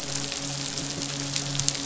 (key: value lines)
label: biophony, midshipman
recorder: SoundTrap 500